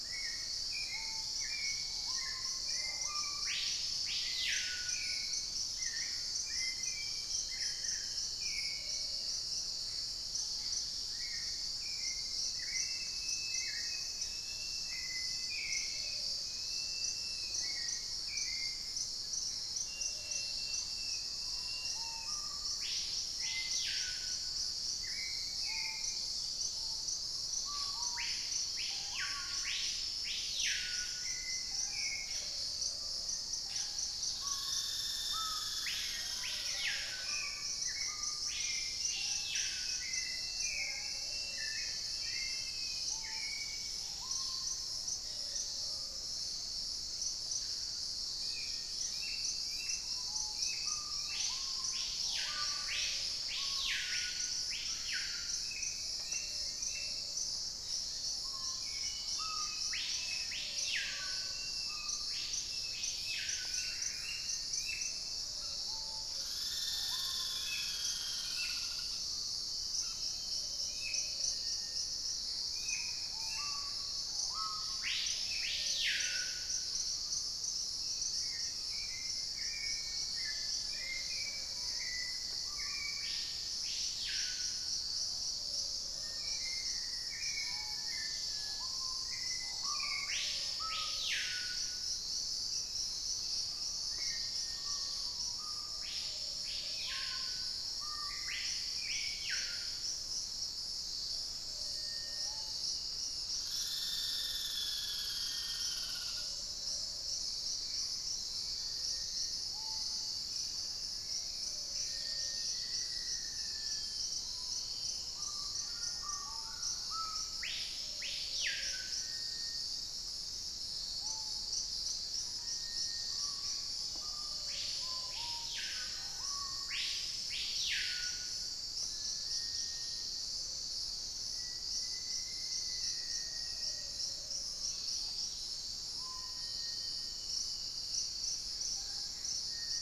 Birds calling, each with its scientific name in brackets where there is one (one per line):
Screaming Piha (Lipaugus vociferans)
Plumbeous Pigeon (Patagioenas plumbea)
Gray Antbird (Cercomacra cinerascens)
Plain-brown Woodcreeper (Dendrocincla fuliginosa)
Dusky-throated Antshrike (Thamnomanes ardesiacus)
Black-capped Becard (Pachyramphus marginatus)
Black-faced Antthrush (Formicarius analis)
unidentified bird
Cinereous Mourner (Laniocera hypopyrra)
Wing-barred Piprites (Piprites chloris)
Red-bellied Macaw (Orthopsittaca manilatus)
Gray-cowled Wood-Rail (Aramides cajaneus)
Hauxwell's Thrush (Turdus hauxwelli)
Black-spotted Bare-eye (Phlegopsis nigromaculata)
Dusky-capped Greenlet (Pachysylvia hypoxantha)